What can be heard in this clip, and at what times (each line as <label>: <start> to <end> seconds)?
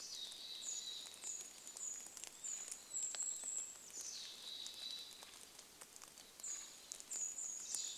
Golden-crowned Kinglet song: 0 to 4 seconds
Mountain Chickadee call: 0 to 8 seconds
Red-breasted Nuthatch song: 0 to 8 seconds
rain: 0 to 8 seconds
warbler song: 2 to 4 seconds
Golden-crowned Kinglet song: 6 to 8 seconds